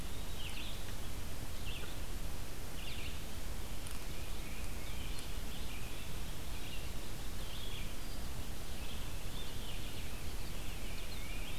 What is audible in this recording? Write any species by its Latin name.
Vireo solitarius, Vireo olivaceus, Baeolophus bicolor